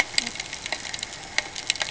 {"label": "ambient", "recorder": "HydroMoth"}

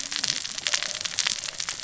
{"label": "biophony, cascading saw", "recorder": "SoundTrap 600 or HydroMoth"}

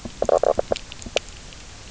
{"label": "biophony, knock croak", "recorder": "SoundTrap 300"}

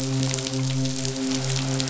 {"label": "biophony, midshipman", "recorder": "SoundTrap 500"}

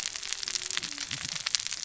{"label": "biophony, cascading saw", "recorder": "SoundTrap 600 or HydroMoth"}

